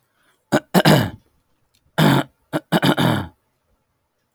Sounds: Throat clearing